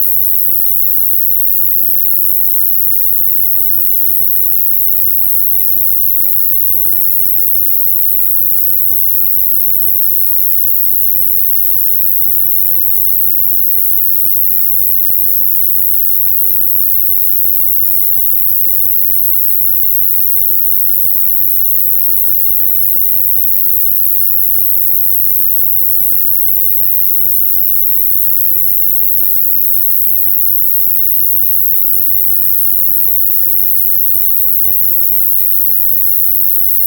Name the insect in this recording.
Ruspolia nitidula, an orthopteran